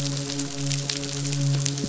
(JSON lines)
{"label": "biophony, midshipman", "recorder": "SoundTrap 500"}